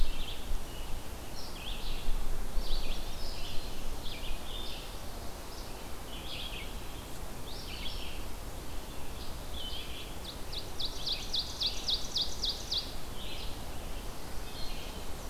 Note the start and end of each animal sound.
0.0s-15.3s: Red-eyed Vireo (Vireo olivaceus)
2.7s-3.6s: Chestnut-sided Warbler (Setophaga pensylvanica)
10.1s-13.1s: Ovenbird (Seiurus aurocapilla)

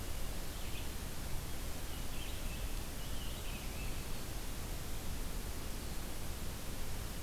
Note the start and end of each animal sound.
0.0s-4.0s: Red-eyed Vireo (Vireo olivaceus)

